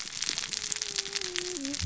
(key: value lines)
label: biophony, cascading saw
recorder: SoundTrap 600 or HydroMoth